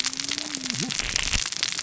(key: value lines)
label: biophony, cascading saw
recorder: SoundTrap 600 or HydroMoth